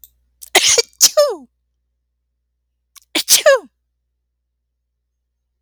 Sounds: Sneeze